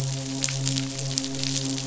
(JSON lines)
{"label": "biophony, midshipman", "recorder": "SoundTrap 500"}